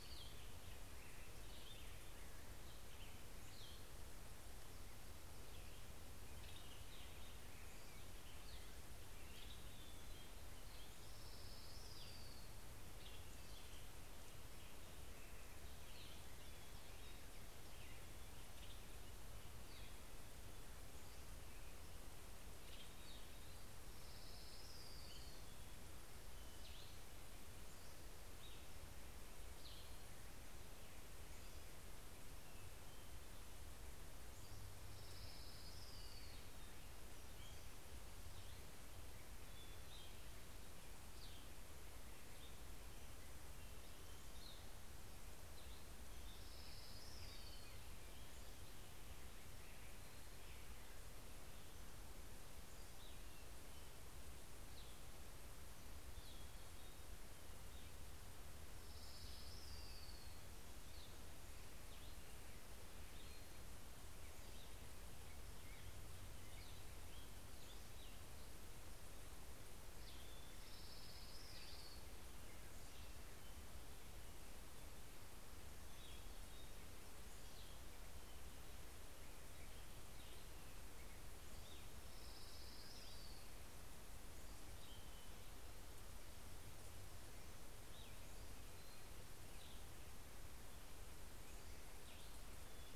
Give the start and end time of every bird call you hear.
[0.00, 0.81] Orange-crowned Warbler (Leiothlypis celata)
[0.00, 4.41] Cassin's Vireo (Vireo cassinii)
[5.71, 7.91] Western Tanager (Piranga ludoviciana)
[8.91, 10.31] Western Tanager (Piranga ludoviciana)
[10.41, 13.51] Orange-crowned Warbler (Leiothlypis celata)
[12.51, 14.31] Western Tanager (Piranga ludoviciana)
[15.31, 17.41] Hermit Thrush (Catharus guttatus)
[18.11, 19.01] Western Tanager (Piranga ludoviciana)
[20.71, 21.61] Pacific-slope Flycatcher (Empidonax difficilis)
[22.41, 23.21] Western Tanager (Piranga ludoviciana)
[23.61, 25.71] Orange-crowned Warbler (Leiothlypis celata)
[27.41, 28.41] Pacific-slope Flycatcher (Empidonax difficilis)
[28.01, 30.31] Western Tanager (Piranga ludoviciana)
[31.21, 32.11] Pacific-slope Flycatcher (Empidonax difficilis)
[34.01, 34.71] Pacific-slope Flycatcher (Empidonax difficilis)
[34.51, 36.81] Orange-crowned Warbler (Leiothlypis celata)
[38.81, 40.61] Hermit Thrush (Catharus guttatus)
[41.01, 51.21] Cassin's Vireo (Vireo cassinii)
[46.01, 48.41] Orange-crowned Warbler (Leiothlypis celata)
[52.11, 57.51] Cassin's Vireo (Vireo cassinii)
[58.41, 60.61] Orange-crowned Warbler (Leiothlypis celata)
[60.51, 68.61] Cassin's Vireo (Vireo cassinii)
[70.31, 72.61] Orange-crowned Warbler (Leiothlypis celata)
[75.61, 91.01] Cassin's Vireo (Vireo cassinii)
[81.51, 83.81] Orange-crowned Warbler (Leiothlypis celata)

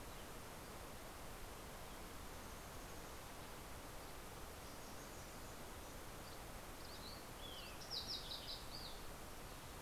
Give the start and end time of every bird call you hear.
[5.70, 9.50] Fox Sparrow (Passerella iliaca)

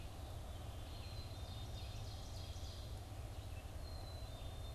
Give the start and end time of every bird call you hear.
[0.00, 4.75] Red-eyed Vireo (Vireo olivaceus)
[0.20, 4.75] Black-capped Chickadee (Poecile atricapillus)
[0.50, 4.75] Ovenbird (Seiurus aurocapilla)

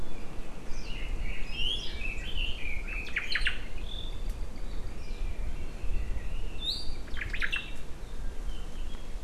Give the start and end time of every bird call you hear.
[0.68, 3.17] Red-billed Leiothrix (Leiothrix lutea)
[3.17, 3.58] Omao (Myadestes obscurus)
[3.88, 4.88] Apapane (Himatione sanguinea)
[4.97, 6.78] Red-billed Leiothrix (Leiothrix lutea)
[7.08, 7.88] Omao (Myadestes obscurus)

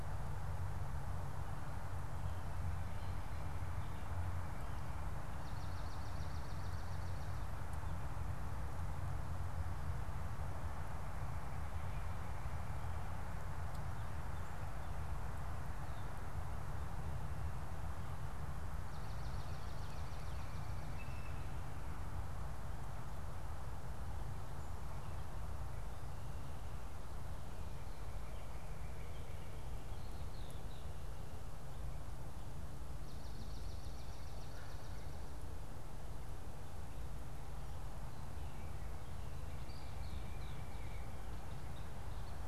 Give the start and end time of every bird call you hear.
[5.33, 7.03] Swamp Sparrow (Melospiza georgiana)
[18.93, 21.03] Swamp Sparrow (Melospiza georgiana)
[20.83, 21.63] Blue Jay (Cyanocitta cristata)
[30.03, 31.13] Red-winged Blackbird (Agelaius phoeniceus)
[33.13, 35.23] Swamp Sparrow (Melospiza georgiana)
[39.53, 40.23] Red-winged Blackbird (Agelaius phoeniceus)

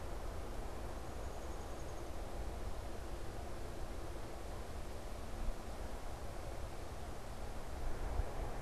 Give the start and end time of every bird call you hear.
[1.05, 2.15] Downy Woodpecker (Dryobates pubescens)

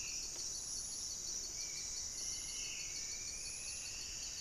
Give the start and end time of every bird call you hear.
[0.00, 1.65] Horned Screamer (Anhima cornuta)
[0.00, 2.05] Spot-winged Antshrike (Pygiptila stellaris)
[0.00, 2.95] Black-spotted Bare-eye (Phlegopsis nigromaculata)
[0.00, 4.41] Buff-breasted Wren (Cantorchilus leucotis)
[2.05, 4.41] Striped Woodcreeper (Xiphorhynchus obsoletus)
[2.95, 4.41] Black-faced Antthrush (Formicarius analis)

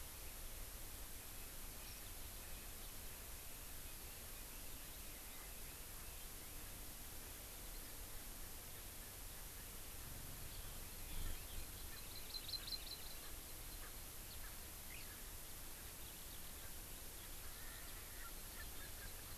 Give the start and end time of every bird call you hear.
[11.75, 13.25] Hawaii Amakihi (Chlorodrepanis virens)
[11.85, 12.05] Erckel's Francolin (Pternistis erckelii)
[12.55, 12.75] Erckel's Francolin (Pternistis erckelii)
[13.15, 13.35] Erckel's Francolin (Pternistis erckelii)
[13.75, 13.95] Erckel's Francolin (Pternistis erckelii)
[17.45, 19.35] Erckel's Francolin (Pternistis erckelii)

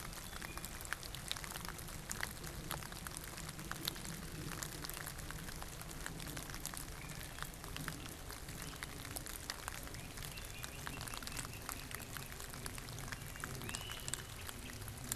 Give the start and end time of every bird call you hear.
[0.08, 1.08] Wood Thrush (Hylocichla mustelina)
[8.58, 15.08] Great Crested Flycatcher (Myiarchus crinitus)

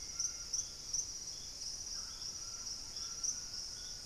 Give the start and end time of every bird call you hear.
[0.00, 4.06] Hauxwell's Thrush (Turdus hauxwelli)
[0.00, 4.06] White-throated Toucan (Ramphastos tucanus)
[0.71, 4.06] Purple-throated Fruitcrow (Querula purpurata)

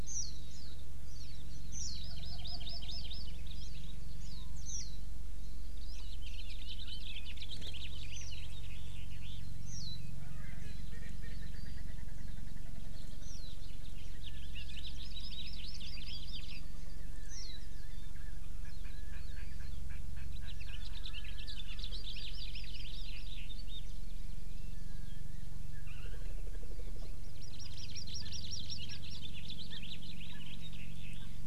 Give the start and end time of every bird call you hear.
[0.02, 0.72] Warbling White-eye (Zosterops japonicus)
[1.02, 1.42] Warbling White-eye (Zosterops japonicus)
[1.72, 2.02] Warbling White-eye (Zosterops japonicus)
[2.02, 3.32] Hawaii Amakihi (Chlorodrepanis virens)
[3.52, 3.82] Warbling White-eye (Zosterops japonicus)
[4.22, 5.02] Warbling White-eye (Zosterops japonicus)
[5.82, 9.42] House Finch (Haemorhous mexicanus)
[9.62, 10.02] Warbling White-eye (Zosterops japonicus)
[10.22, 13.02] Erckel's Francolin (Pternistis erckelii)
[12.92, 14.82] House Finch (Haemorhous mexicanus)
[14.82, 16.62] Hawaii Amakihi (Chlorodrepanis virens)
[17.32, 17.62] Warbling White-eye (Zosterops japonicus)
[18.62, 19.52] Erckel's Francolin (Pternistis erckelii)
[19.92, 20.52] Erckel's Francolin (Pternistis erckelii)
[20.52, 21.92] House Finch (Haemorhous mexicanus)
[21.92, 23.52] Hawaii Amakihi (Chlorodrepanis virens)
[27.22, 29.22] Hawaii Amakihi (Chlorodrepanis virens)
[28.12, 28.32] Erckel's Francolin (Pternistis erckelii)
[28.92, 29.02] Erckel's Francolin (Pternistis erckelii)
[29.22, 31.42] House Finch (Haemorhous mexicanus)
[29.72, 29.82] Erckel's Francolin (Pternistis erckelii)
[30.32, 30.42] Erckel's Francolin (Pternistis erckelii)
[31.12, 31.32] Erckel's Francolin (Pternistis erckelii)

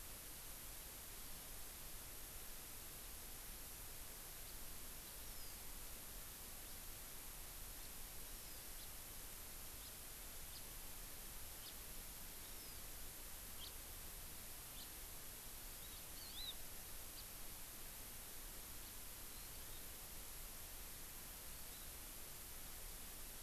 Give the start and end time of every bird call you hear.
[1.08, 1.49] Hawaii Amakihi (Chlorodrepanis virens)
[5.18, 5.58] Hawaii Amakihi (Chlorodrepanis virens)
[6.58, 6.79] House Finch (Haemorhous mexicanus)
[7.79, 7.88] House Finch (Haemorhous mexicanus)
[8.19, 8.59] Hawaii Amakihi (Chlorodrepanis virens)
[8.79, 8.88] House Finch (Haemorhous mexicanus)
[9.79, 9.88] House Finch (Haemorhous mexicanus)
[10.48, 10.59] House Finch (Haemorhous mexicanus)
[11.59, 11.69] House Finch (Haemorhous mexicanus)
[12.38, 12.88] Hawaii Amakihi (Chlorodrepanis virens)
[13.59, 13.69] House Finch (Haemorhous mexicanus)
[14.69, 14.88] House Finch (Haemorhous mexicanus)
[15.59, 16.48] Hawaii Amakihi (Chlorodrepanis virens)
[17.09, 17.29] House Finch (Haemorhous mexicanus)
[18.79, 18.89] House Finch (Haemorhous mexicanus)
[19.29, 19.79] Hawaii Amakihi (Chlorodrepanis virens)
[21.39, 21.79] Hawaii Amakihi (Chlorodrepanis virens)

